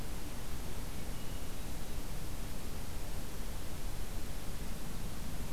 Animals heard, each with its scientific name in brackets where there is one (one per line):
Hermit Thrush (Catharus guttatus)